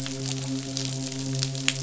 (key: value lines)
label: biophony, midshipman
recorder: SoundTrap 500